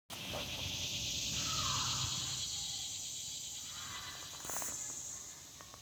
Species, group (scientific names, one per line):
Neotibicen tibicen
Cicadidae